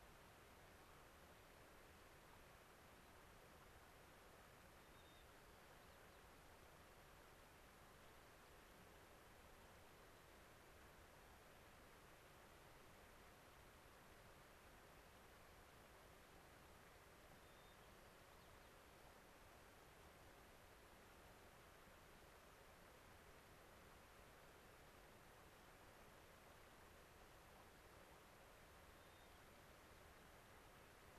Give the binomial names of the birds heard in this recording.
Zonotrichia leucophrys